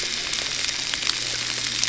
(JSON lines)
{"label": "anthrophony, boat engine", "recorder": "SoundTrap 300"}